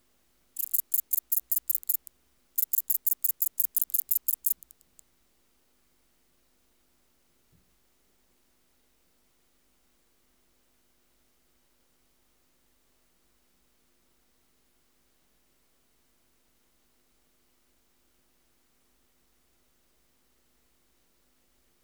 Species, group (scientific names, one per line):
Sepiana sepium
Orthoptera